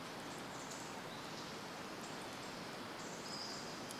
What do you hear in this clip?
unidentified bird chip note, Pacific-slope Flycatcher call